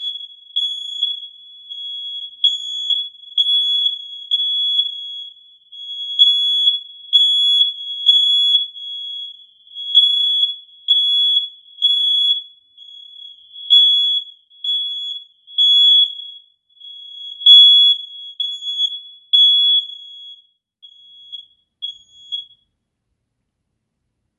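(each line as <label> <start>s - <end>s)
An alarm signal repeats. 0.0s - 22.8s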